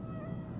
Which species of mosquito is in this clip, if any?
Aedes albopictus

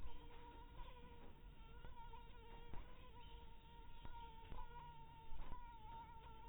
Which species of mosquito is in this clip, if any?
mosquito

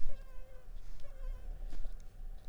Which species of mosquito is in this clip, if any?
Culex pipiens complex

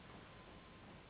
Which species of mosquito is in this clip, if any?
Anopheles gambiae s.s.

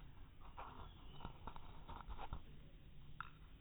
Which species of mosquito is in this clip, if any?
no mosquito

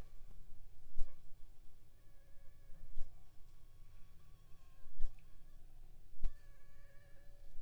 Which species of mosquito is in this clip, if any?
Anopheles funestus s.l.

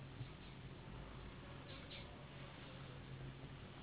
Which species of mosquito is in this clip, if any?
Anopheles gambiae s.s.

